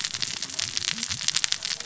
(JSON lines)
{"label": "biophony, cascading saw", "recorder": "SoundTrap 600 or HydroMoth"}